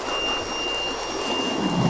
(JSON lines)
{"label": "anthrophony, boat engine", "recorder": "SoundTrap 500"}